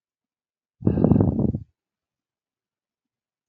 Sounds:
Sigh